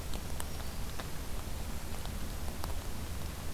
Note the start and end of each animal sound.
0.0s-1.1s: Black-throated Green Warbler (Setophaga virens)

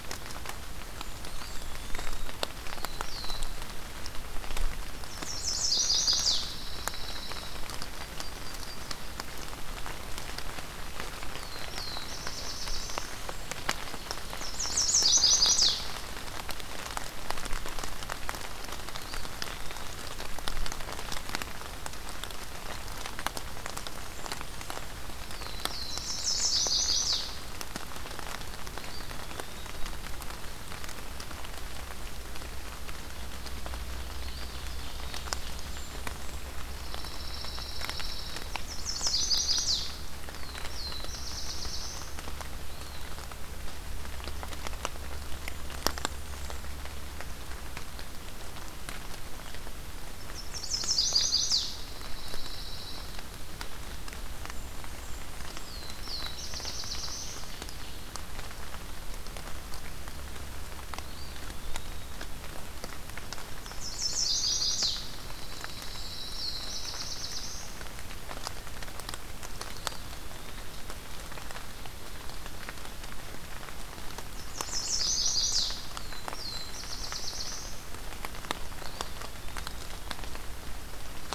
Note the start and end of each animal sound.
0.7s-2.2s: Blackburnian Warbler (Setophaga fusca)
1.1s-2.3s: Eastern Wood-Pewee (Contopus virens)
2.6s-3.5s: Black-throated Blue Warbler (Setophaga caerulescens)
4.9s-6.4s: Chestnut-sided Warbler (Setophaga pensylvanica)
6.4s-7.6s: Pine Warbler (Setophaga pinus)
7.5s-9.1s: Yellow-rumped Warbler (Setophaga coronata)
11.2s-13.2s: Black-throated Blue Warbler (Setophaga caerulescens)
14.2s-15.9s: Chestnut-sided Warbler (Setophaga pensylvanica)
18.8s-20.0s: Eastern Wood-Pewee (Contopus virens)
23.6s-25.0s: Blackburnian Warbler (Setophaga fusca)
25.2s-26.5s: Black-throated Blue Warbler (Setophaga caerulescens)
26.0s-27.4s: Chestnut-sided Warbler (Setophaga pensylvanica)
28.6s-29.8s: Eastern Wood-Pewee (Contopus virens)
34.0s-35.5s: Eastern Wood-Pewee (Contopus virens)
35.2s-36.5s: Blackburnian Warbler (Setophaga fusca)
36.7s-38.5s: Pine Warbler (Setophaga pinus)
38.7s-40.0s: Chestnut-sided Warbler (Setophaga pensylvanica)
40.1s-42.1s: Black-throated Blue Warbler (Setophaga caerulescens)
42.5s-43.3s: Eastern Wood-Pewee (Contopus virens)
45.4s-46.7s: Blackburnian Warbler (Setophaga fusca)
50.1s-51.9s: Chestnut-sided Warbler (Setophaga pensylvanica)
51.6s-53.1s: Pine Warbler (Setophaga pinus)
54.1s-55.9s: Blackburnian Warbler (Setophaga fusca)
55.5s-57.6s: Black-throated Blue Warbler (Setophaga caerulescens)
61.0s-62.1s: Eastern Wood-Pewee (Contopus virens)
63.5s-65.1s: Chestnut-sided Warbler (Setophaga pensylvanica)
64.8s-66.3s: Pine Warbler (Setophaga pinus)
65.3s-66.7s: Blackburnian Warbler (Setophaga fusca)
66.0s-67.9s: Black-throated Blue Warbler (Setophaga caerulescens)
69.6s-70.8s: Eastern Wood-Pewee (Contopus virens)
74.3s-75.9s: Chestnut-sided Warbler (Setophaga pensylvanica)
75.8s-77.8s: Black-throated Blue Warbler (Setophaga caerulescens)
75.9s-77.4s: Blackburnian Warbler (Setophaga fusca)
78.7s-79.9s: Eastern Wood-Pewee (Contopus virens)

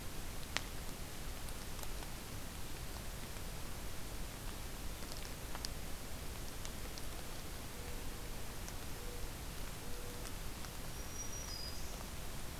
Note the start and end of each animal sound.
7.6s-10.4s: Mourning Dove (Zenaida macroura)
10.9s-12.0s: Black-throated Green Warbler (Setophaga virens)

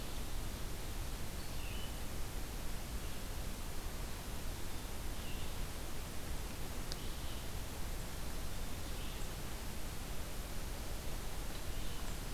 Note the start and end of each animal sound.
0.0s-12.3s: Red-eyed Vireo (Vireo olivaceus)

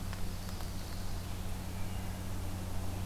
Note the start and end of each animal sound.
0.0s-1.3s: Chestnut-sided Warbler (Setophaga pensylvanica)

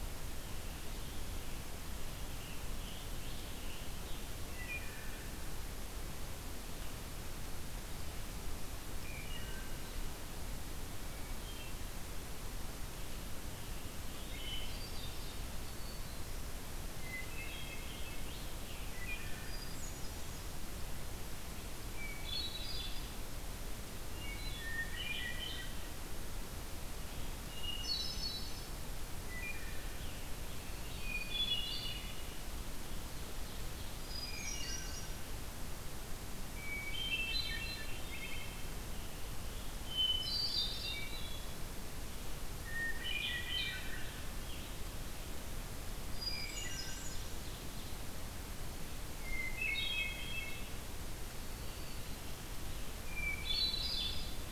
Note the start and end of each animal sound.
0.0s-1.6s: Scarlet Tanager (Piranga olivacea)
1.9s-4.3s: Scarlet Tanager (Piranga olivacea)
4.4s-5.4s: Wood Thrush (Hylocichla mustelina)
9.0s-10.1s: Wood Thrush (Hylocichla mustelina)
11.0s-12.1s: Hermit Thrush (Catharus guttatus)
13.1s-14.9s: Scarlet Tanager (Piranga olivacea)
14.2s-14.9s: Wood Thrush (Hylocichla mustelina)
14.3s-15.4s: Hermit Thrush (Catharus guttatus)
15.5s-16.5s: Black-throated Green Warbler (Setophaga virens)
17.0s-18.1s: Hermit Thrush (Catharus guttatus)
17.5s-18.9s: Scarlet Tanager (Piranga olivacea)
18.9s-19.6s: Wood Thrush (Hylocichla mustelina)
19.3s-20.4s: Hermit Thrush (Catharus guttatus)
21.7s-23.3s: Hermit Thrush (Catharus guttatus)
24.1s-24.8s: Wood Thrush (Hylocichla mustelina)
24.6s-25.9s: Hermit Thrush (Catharus guttatus)
27.4s-28.8s: Hermit Thrush (Catharus guttatus)
29.3s-29.9s: Wood Thrush (Hylocichla mustelina)
29.7s-31.3s: Scarlet Tanager (Piranga olivacea)
30.6s-31.7s: Black-throated Green Warbler (Setophaga virens)
31.0s-32.3s: Hermit Thrush (Catharus guttatus)
33.9s-35.3s: Hermit Thrush (Catharus guttatus)
34.3s-35.2s: Wood Thrush (Hylocichla mustelina)
36.5s-38.8s: Hermit Thrush (Catharus guttatus)
39.8s-41.5s: Hermit Thrush (Catharus guttatus)
40.8s-41.5s: Wood Thrush (Hylocichla mustelina)
42.6s-44.2s: Hermit Thrush (Catharus guttatus)
43.5s-44.8s: Scarlet Tanager (Piranga olivacea)
46.1s-47.3s: Hermit Thrush (Catharus guttatus)
46.1s-47.1s: Wood Thrush (Hylocichla mustelina)
49.2s-50.7s: Hermit Thrush (Catharus guttatus)
51.1s-52.4s: Black-throated Green Warbler (Setophaga virens)
52.9s-54.5s: Hermit Thrush (Catharus guttatus)

